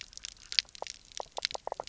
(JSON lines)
{"label": "biophony, knock croak", "recorder": "SoundTrap 300"}